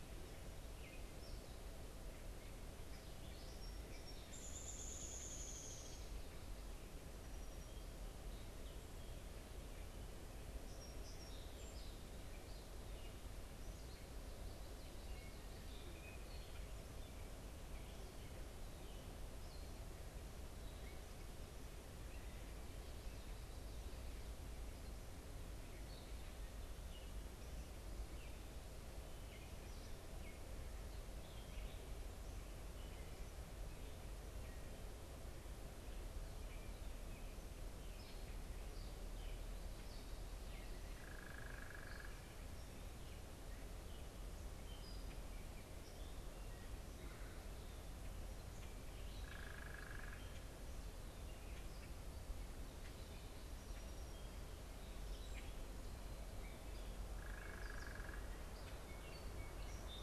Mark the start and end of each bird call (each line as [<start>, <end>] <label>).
[0.70, 4.70] Gray Catbird (Dumetella carolinensis)
[4.20, 6.20] Downy Woodpecker (Dryobates pubescens)
[10.30, 12.50] Song Sparrow (Melospiza melodia)
[14.60, 21.60] Gray Catbird (Dumetella carolinensis)
[25.70, 38.40] unidentified bird
[39.60, 53.20] Gray Catbird (Dumetella carolinensis)
[40.90, 42.30] unidentified bird
[49.20, 50.30] unidentified bird
[53.40, 54.90] Song Sparrow (Melospiza melodia)
[54.90, 60.02] Gray Catbird (Dumetella carolinensis)
[57.10, 58.30] unidentified bird
[58.90, 60.02] Song Sparrow (Melospiza melodia)